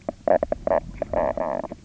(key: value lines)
label: biophony, knock croak
recorder: SoundTrap 300